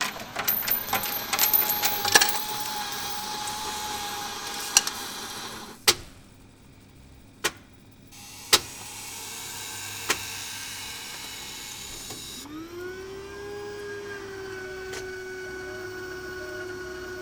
is this sound coming from a car?
no